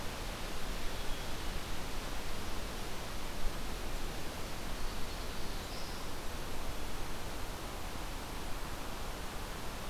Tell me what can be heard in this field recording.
Black-throated Green Warbler, Black-capped Chickadee